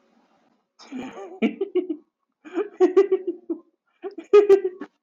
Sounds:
Laughter